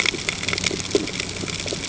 {"label": "ambient", "recorder": "HydroMoth"}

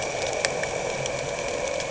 {"label": "anthrophony, boat engine", "recorder": "HydroMoth"}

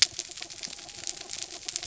{"label": "anthrophony, mechanical", "recorder": "SoundTrap 300"}
{"label": "biophony", "recorder": "SoundTrap 300"}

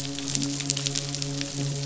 {"label": "biophony, midshipman", "recorder": "SoundTrap 500"}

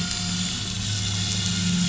{"label": "anthrophony, boat engine", "recorder": "SoundTrap 500"}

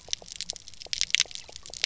{"label": "biophony, pulse", "recorder": "SoundTrap 300"}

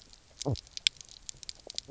{"label": "biophony, knock croak", "recorder": "SoundTrap 300"}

